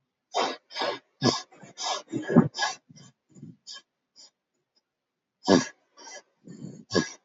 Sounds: Sniff